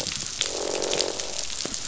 {"label": "biophony, croak", "recorder": "SoundTrap 500"}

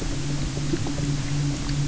{"label": "anthrophony, boat engine", "recorder": "SoundTrap 300"}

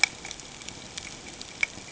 {"label": "ambient", "recorder": "HydroMoth"}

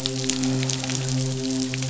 {"label": "biophony, midshipman", "recorder": "SoundTrap 500"}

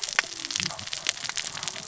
{"label": "biophony, cascading saw", "recorder": "SoundTrap 600 or HydroMoth"}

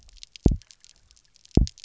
{"label": "biophony, double pulse", "recorder": "SoundTrap 300"}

